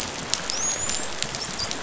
{"label": "biophony, dolphin", "recorder": "SoundTrap 500"}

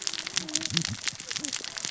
{"label": "biophony, cascading saw", "recorder": "SoundTrap 600 or HydroMoth"}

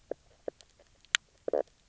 {"label": "biophony, knock croak", "recorder": "SoundTrap 300"}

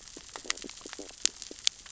{"label": "biophony, stridulation", "recorder": "SoundTrap 600 or HydroMoth"}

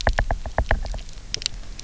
{"label": "biophony, knock", "recorder": "SoundTrap 300"}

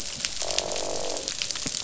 {"label": "biophony, croak", "recorder": "SoundTrap 500"}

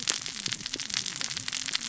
{"label": "biophony, cascading saw", "recorder": "SoundTrap 600 or HydroMoth"}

